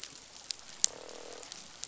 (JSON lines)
{"label": "biophony, croak", "recorder": "SoundTrap 500"}